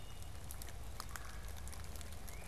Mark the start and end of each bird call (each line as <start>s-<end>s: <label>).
0.0s-2.5s: Blue-headed Vireo (Vireo solitarius)
0.0s-2.5s: Wood Thrush (Hylocichla mustelina)
1.1s-1.5s: Red-bellied Woodpecker (Melanerpes carolinus)